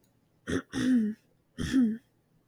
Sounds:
Throat clearing